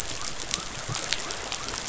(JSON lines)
{"label": "biophony", "recorder": "SoundTrap 500"}